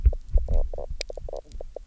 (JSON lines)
{"label": "biophony, knock croak", "recorder": "SoundTrap 300"}